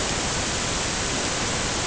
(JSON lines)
{"label": "ambient", "recorder": "HydroMoth"}